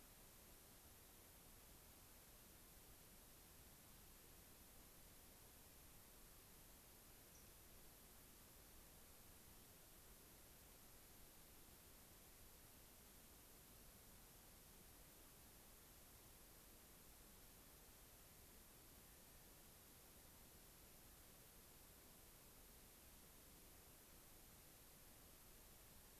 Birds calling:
Fox Sparrow (Passerella iliaca)

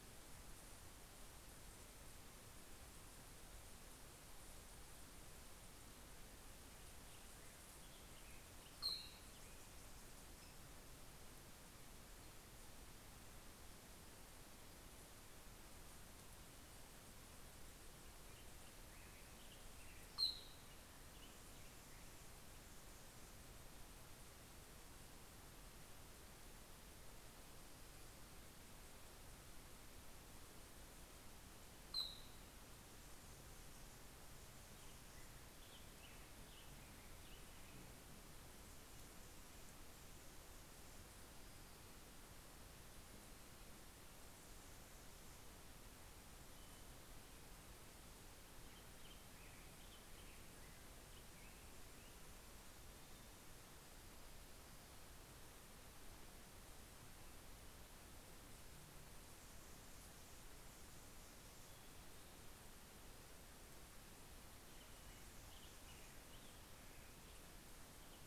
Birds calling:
Black-headed Grosbeak (Pheucticus melanocephalus)
Anna's Hummingbird (Calypte anna)

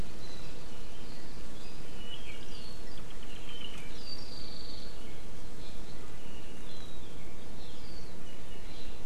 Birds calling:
Apapane (Himatione sanguinea)
Hawaii Creeper (Loxops mana)

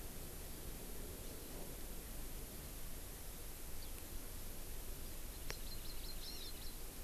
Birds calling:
Hawaii Amakihi (Chlorodrepanis virens)

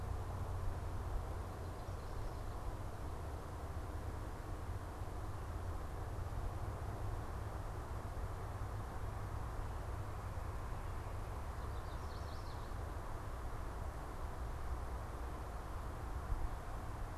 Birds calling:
Chestnut-sided Warbler (Setophaga pensylvanica)

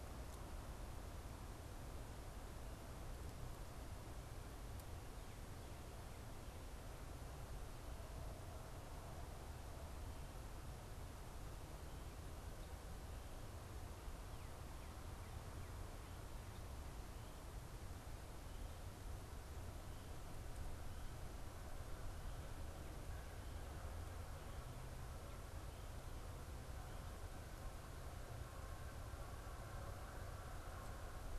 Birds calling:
Northern Cardinal (Cardinalis cardinalis)

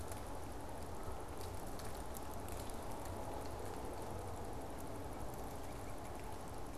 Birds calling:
Northern Cardinal (Cardinalis cardinalis)

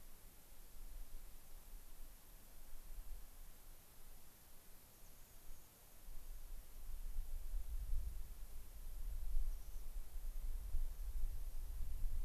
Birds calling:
American Pipit (Anthus rubescens)

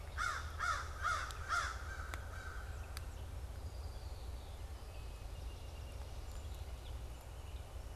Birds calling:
Song Sparrow (Melospiza melodia)
American Crow (Corvus brachyrhynchos)
Red-winged Blackbird (Agelaius phoeniceus)

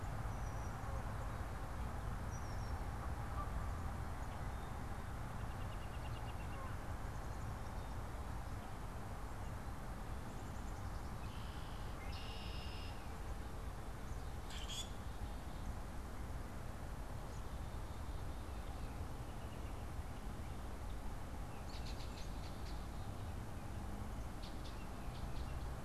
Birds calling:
American Robin (Turdus migratorius)
Red-winged Blackbird (Agelaius phoeniceus)
Common Grackle (Quiscalus quiscula)
Black-capped Chickadee (Poecile atricapillus)
Canada Goose (Branta canadensis)

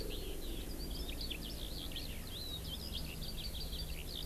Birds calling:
Eurasian Skylark (Alauda arvensis)

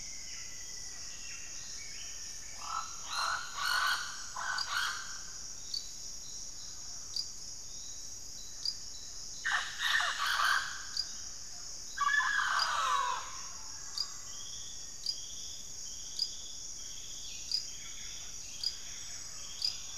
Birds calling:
Rufous-fronted Antthrush (Formicarius rufifrons)
Black-faced Antthrush (Formicarius analis)
Mealy Parrot (Amazona farinosa)
Buff-breasted Wren (Cantorchilus leucotis)

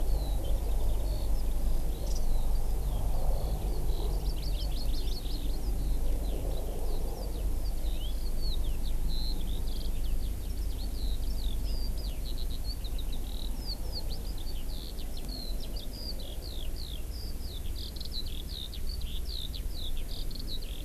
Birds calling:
Warbling White-eye (Zosterops japonicus)
Eurasian Skylark (Alauda arvensis)
House Finch (Haemorhous mexicanus)
Hawaii Amakihi (Chlorodrepanis virens)

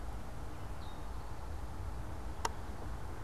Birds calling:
Gray Catbird (Dumetella carolinensis)

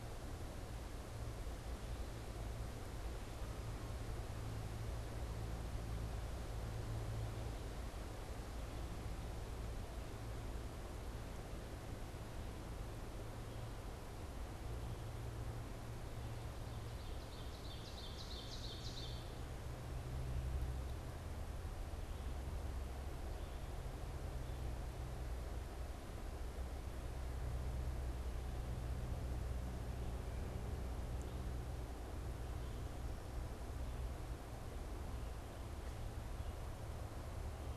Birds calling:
Ovenbird (Seiurus aurocapilla)

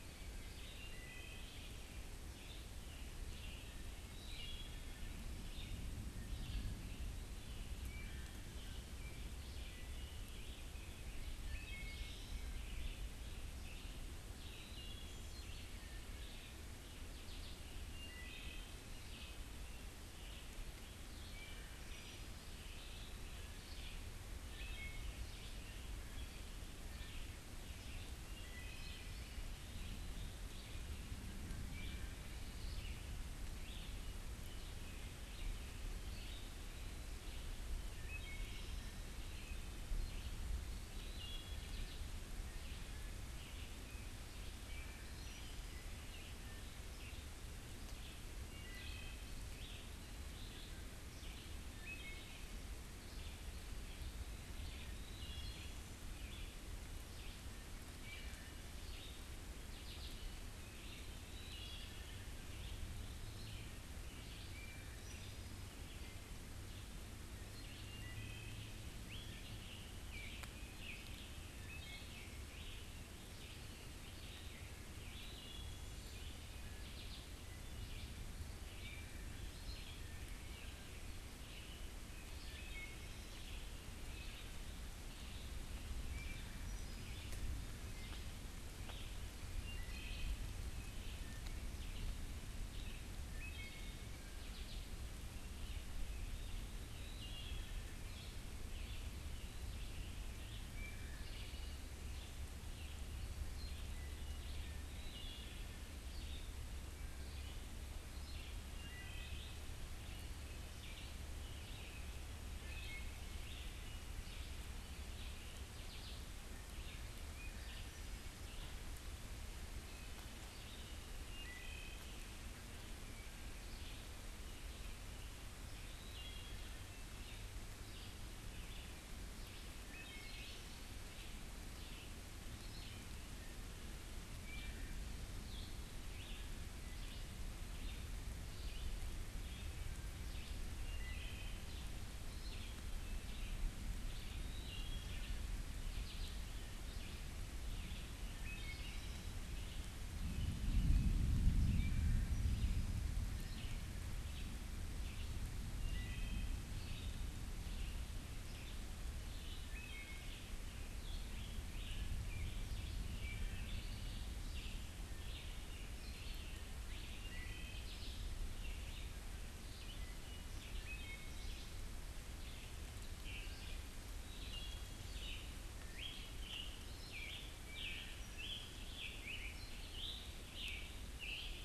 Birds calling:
Red-eyed Vireo (Vireo olivaceus)
Wood Thrush (Hylocichla mustelina)
Scarlet Tanager (Piranga olivacea)
unidentified bird

